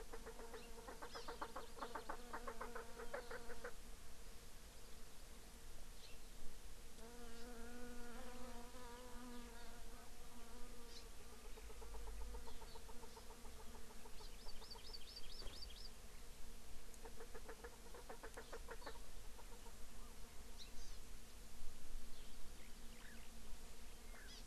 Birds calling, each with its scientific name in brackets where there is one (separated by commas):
Chukar (Alectoris chukar), Hawaii Amakihi (Chlorodrepanis virens)